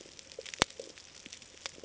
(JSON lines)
{"label": "ambient", "recorder": "HydroMoth"}